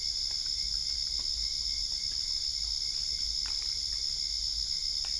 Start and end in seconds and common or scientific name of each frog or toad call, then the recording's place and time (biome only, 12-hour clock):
none
Cerrado, 10:15pm